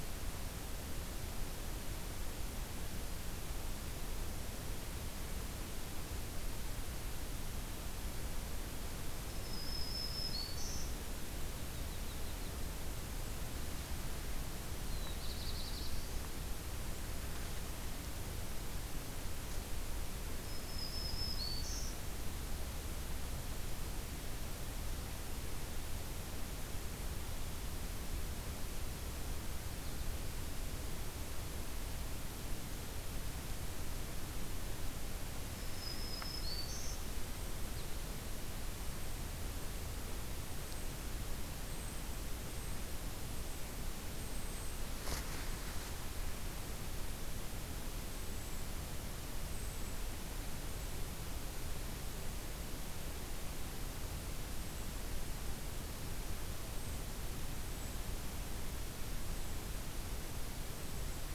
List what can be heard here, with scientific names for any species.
Setophaga virens, Setophaga coronata, Setophaga caerulescens, Bombycilla cedrorum